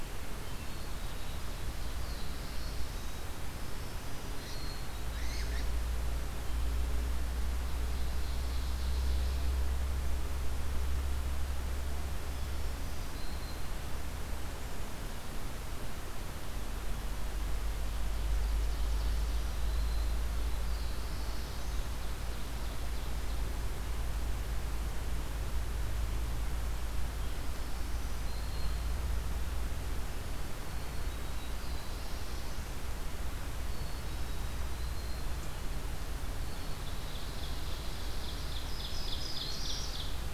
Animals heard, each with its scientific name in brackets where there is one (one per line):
Ovenbird (Seiurus aurocapilla)
unidentified call
Black-throated Blue Warbler (Setophaga caerulescens)
Black-capped Chickadee (Poecile atricapillus)
Black-throated Green Warbler (Setophaga virens)